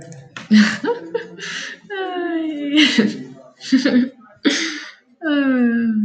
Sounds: Laughter